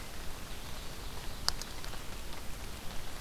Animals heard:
forest ambience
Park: Marsh-Billings-Rockefeller National Historical Park